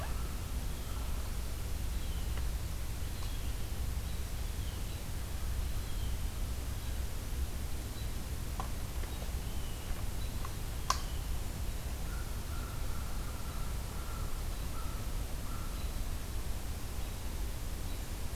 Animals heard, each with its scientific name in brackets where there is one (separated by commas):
American Crow (Corvus brachyrhynchos), American Robin (Turdus migratorius), Blue Jay (Cyanocitta cristata)